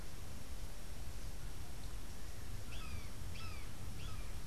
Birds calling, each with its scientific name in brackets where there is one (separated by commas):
Brown Jay (Psilorhinus morio)